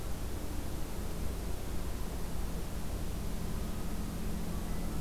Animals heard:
forest ambience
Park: Acadia National Park